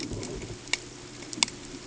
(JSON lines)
{"label": "ambient", "recorder": "HydroMoth"}